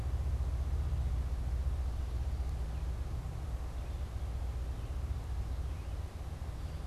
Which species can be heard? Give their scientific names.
unidentified bird